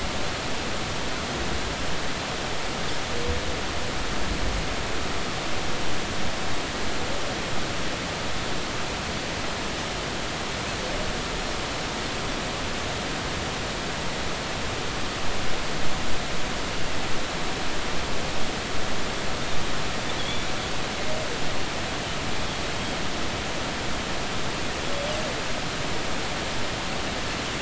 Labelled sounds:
20.2	20.5	Pacific white-sided dolphin, 3.1 to 3.6 kHz

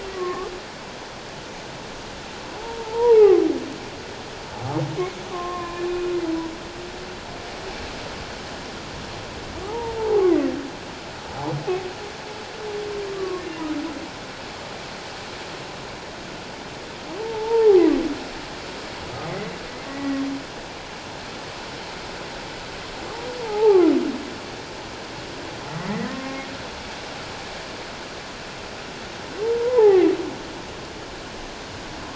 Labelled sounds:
0.1	0.5	humpback whale, 1.0 to 1.2 kHz
2.6	3.4	humpback whale, 0.78 to 1.3 kHz
5.3	5.9	humpback whale, 0.97 to 2.5 kHz
9.7	10.3	humpback whale, 0.78 to 1.0 kHz
13.1	13.4	humpback whale, 0.97 to 1.2 kHz
17.2	17.9	humpback whale, 0.78 to 1.0 kHz
19.9	20.2	humpback whale, 1.8 to 2.0 kHz
23.4	23.9	humpback whale, 0.78 to 1.3 kHz
25.8	26.5	humpback whale, 1.0 to 2.2 kHz
29.4	30.0	humpback whale, 0.78 to 1.1 kHz

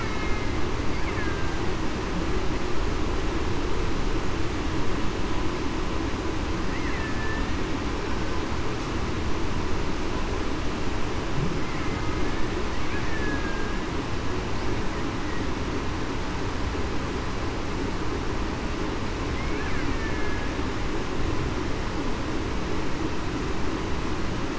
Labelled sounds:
0.0	0.6	killer whale, Bigg's (transient), 2.0 to 2.2 kHz
1.2	1.6	killer whale, Bigg's (transient), 1.6 to 1.8 kHz
7.0	7.5	killer whale, Bigg's (transient), 1.7 to 1.8 kHz
13.1	13.8	killer whale, Bigg's (transient), 1.6 to 1.8 kHz
19.9	20.4	killer whale, Bigg's (transient), 1.6 to 1.9 kHz

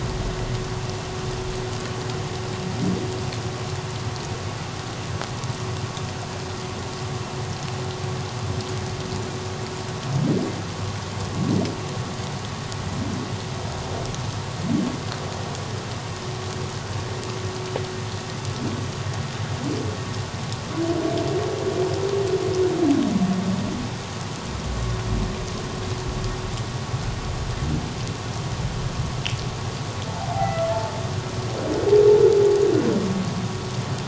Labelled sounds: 30.1	30.7	humpback whale, 0.78 to 2.1 kHz

